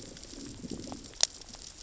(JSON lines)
{"label": "biophony, growl", "recorder": "SoundTrap 600 or HydroMoth"}